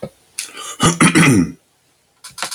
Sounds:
Throat clearing